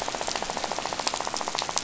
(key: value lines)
label: biophony, rattle
recorder: SoundTrap 500